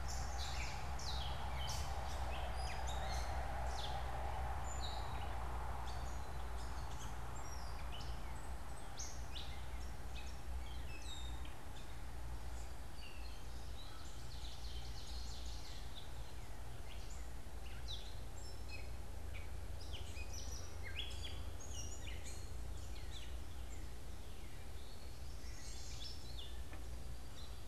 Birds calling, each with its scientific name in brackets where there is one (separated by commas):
Gray Catbird (Dumetella carolinensis), Ovenbird (Seiurus aurocapilla), Chestnut-sided Warbler (Setophaga pensylvanica)